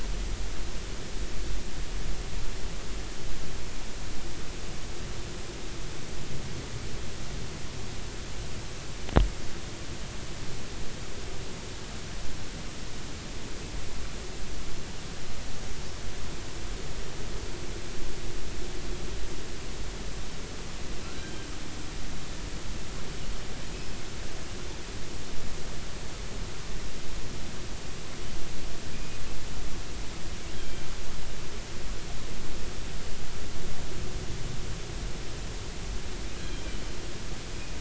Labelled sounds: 21.0	21.4	killer whale, offshore, 1.3 to 1.7 kHz
28.9	29.2	killer whale, offshore, 2.3 to 2.5 kHz
30.5	30.8	killer whale, offshore, 3.1 to 3.3 kHz

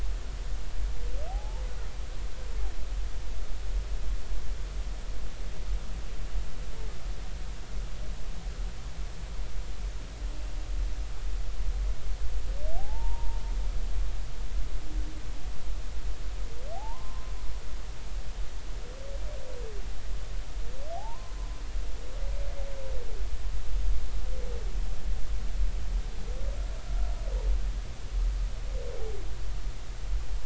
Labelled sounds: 1.3	1.6	humpback whale, 0.80 to 0.96 kHz
12.8	13.4	humpback whale, 0.80 to 0.99 kHz
16.7	17.3	humpback whale, 0.80 to 1.1 kHz
20.9	21.4	humpback whale, 0.80 to 1.1 kHz

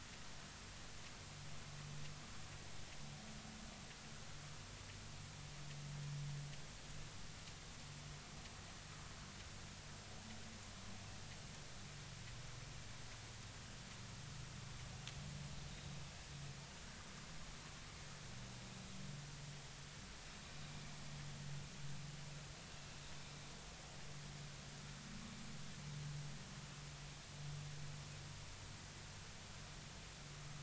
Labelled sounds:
15.7	16.0	vessel noise, 3.6 to 4.0 kHz
22.7	22.9	vessel noise, 2.6 to 2.8 kHz

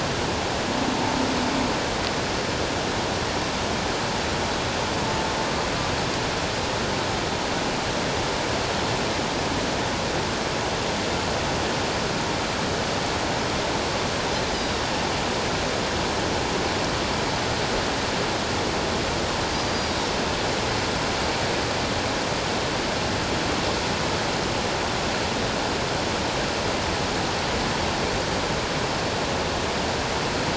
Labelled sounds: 19.6	20.0	humpback whale, 4.6 to 4.9 kHz

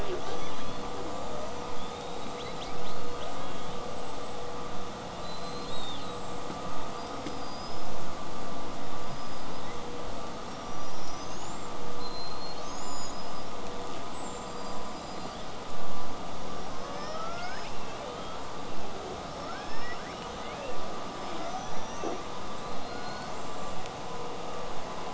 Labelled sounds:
0.0	3.4	killer whale, southern resident, 1.3 to 8.0 kHz
2.4	3.8	killer whale, southern resident, L pod, call S18, 1.8 to 5.0 kHz
3.8	4.4	killer whale, southern resident, whistle, 7.5 to 8.0 kHz
5.2	6.4	killer whale, southern resident, 2.7 to 8.0 kHz
6.9	8.0	killer whale, southern resident, whistle, 4.6 to 8.0 kHz
9.0	9.8	killer whale, southern resident, L pod, call S19, 1.4 to 8.0 kHz
10.5	11.7	killer whale, southern resident, 4.8 to 8.0 kHz
12.0	13.5	killer whale, southern resident, 4.0 to 8.0 kHz
13.9	15.6	killer whale, southern resident, L pod, call S19, 2.7 to 8.0 kHz
16.4	17.8	killer whale, southern resident, L pod, call S19, 0.46 to 8.0 kHz
17.7	18.6	killer whale, southern resident, 0.39 to 8.0 kHz
19.3	20.4	killer whale, southern resident, L pod, call S19, 1.0 to 8.0 kHz
20.4	20.8	killer whale, southern resident, 1.5 to 8.0 kHz
21.1	22.4	killer whale, southern resident, L pod, call S19, 1.2 to 8.0 kHz
22.6	23.8	killer whale, southern resident, call S42, 1.1 to 8.0 kHz

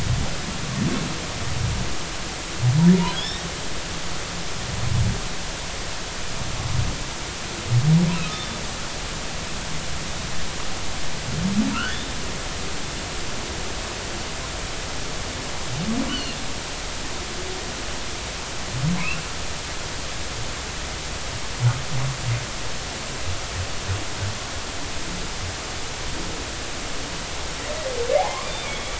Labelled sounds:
3.1	3.5	humpback whale, 3.2 to 5.7 kHz
8.3	8.6	humpback whale, 3.5 to 3.7 kHz
11.7	12.1	humpback whale, 1.2 to 3.7 kHz
16.1	16.4	humpback whale, 2.7 to 4.5 kHz
28.2	28.9	humpback whale, 0.80 to 3.6 kHz

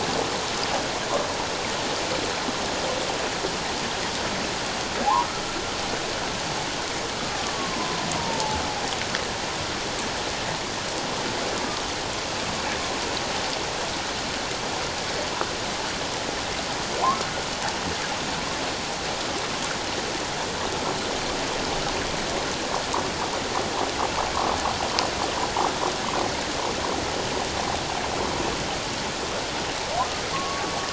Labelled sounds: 7.3	8.6	humpback whale, 0.81 to 1.2 kHz
30.3	30.7	humpback whale, 1.0 to 1.2 kHz

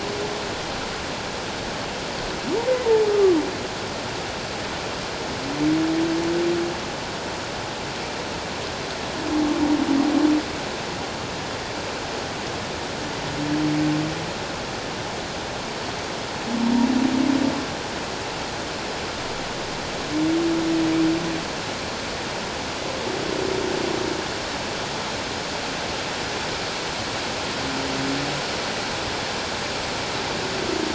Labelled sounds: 2.8	3.4	humpback whale, 0.84 to 1.3 kHz

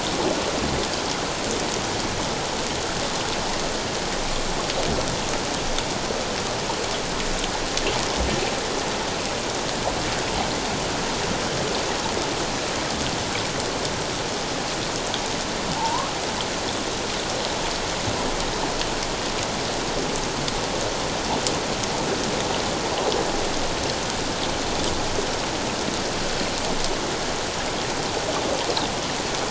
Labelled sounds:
15.7	16.1	humpback whale, 0.78 to 1.2 kHz

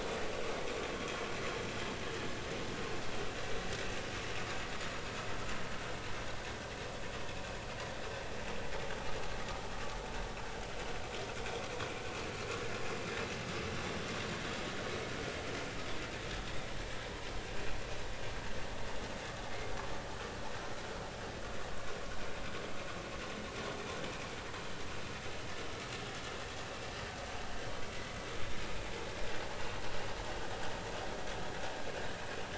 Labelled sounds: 0.9	1.2	vessel noise, 3.1 to 3.4 kHz

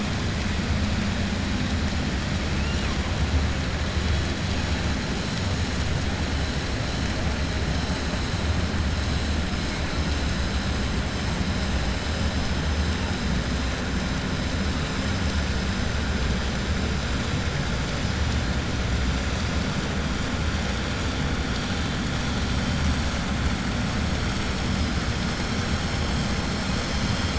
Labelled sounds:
2.5	2.9	killer whale, 2.4 to 3.0 kHz

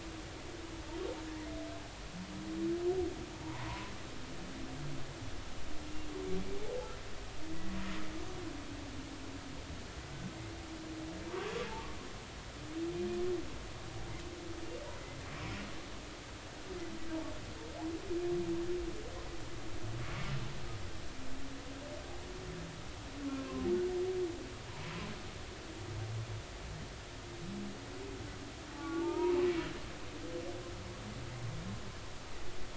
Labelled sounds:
3.4	3.9	humpback whale, 0.83 to 1.1 kHz
14.9	15.2	humpback whale, 2.0 to 2.1 kHz
23.4	23.7	humpback whale, 0.99 to 1.1 kHz
28.7	30.3	humpback whale, 0.80 to 1.5 kHz

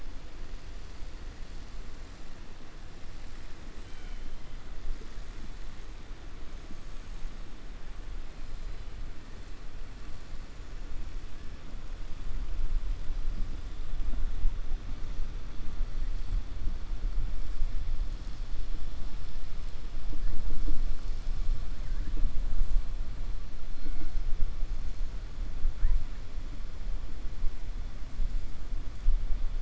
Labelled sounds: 3.8	4.2	killer whale, 0.74 to 3.9 kHz

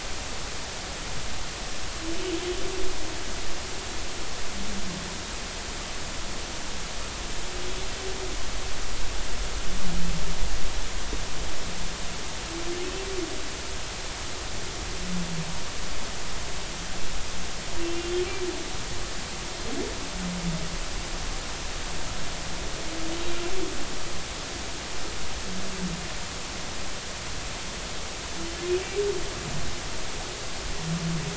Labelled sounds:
17.8	18.1	humpback whale, 2.7 to 2.8 kHz

